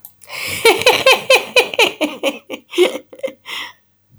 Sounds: Laughter